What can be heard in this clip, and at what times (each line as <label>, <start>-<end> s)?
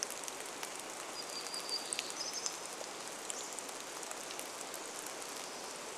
Hermit Warbler song, 0-4 s
rain, 0-6 s
Hammond's Flycatcher song, 2-4 s
unidentified bird chip note, 2-4 s